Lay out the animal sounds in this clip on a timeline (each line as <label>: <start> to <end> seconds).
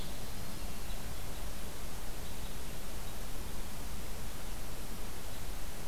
Yellow-rumped Warbler (Setophaga coronata): 0.0 to 0.8 seconds
Red Crossbill (Loxia curvirostra): 0.7 to 5.9 seconds